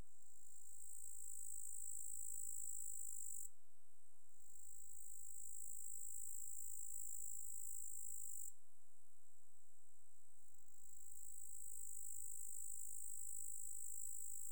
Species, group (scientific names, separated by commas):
Tettigonia cantans, Orthoptera